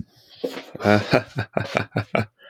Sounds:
Laughter